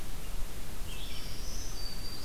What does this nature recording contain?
Red-eyed Vireo, Black-throated Green Warbler